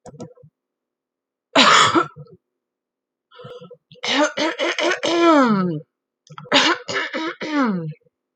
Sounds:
Throat clearing